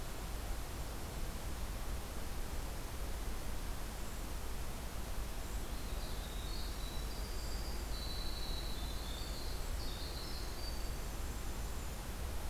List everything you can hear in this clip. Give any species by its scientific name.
Troglodytes hiemalis